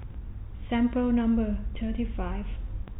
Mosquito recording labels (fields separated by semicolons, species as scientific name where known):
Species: no mosquito; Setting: cup